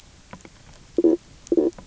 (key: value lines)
label: biophony, knock croak
recorder: SoundTrap 300